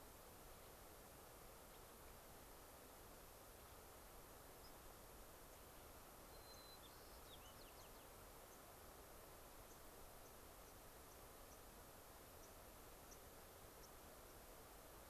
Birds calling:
White-crowned Sparrow (Zonotrichia leucophrys)
Gray-crowned Rosy-Finch (Leucosticte tephrocotis)
unidentified bird

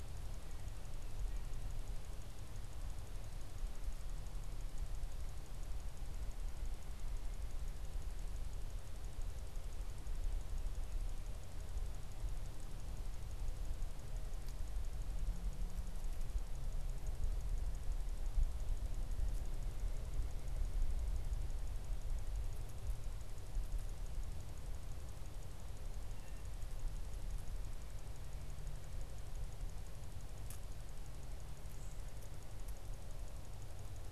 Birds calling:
unidentified bird

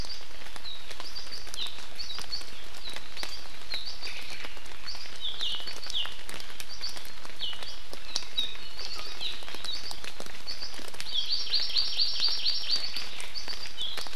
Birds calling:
Omao (Myadestes obscurus)
Hawaii Amakihi (Chlorodrepanis virens)

